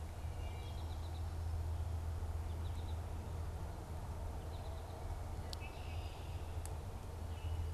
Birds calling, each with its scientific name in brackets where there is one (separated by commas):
Red-winged Blackbird (Agelaius phoeniceus), Wood Thrush (Hylocichla mustelina), American Goldfinch (Spinus tristis)